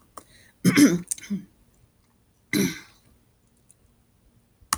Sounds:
Throat clearing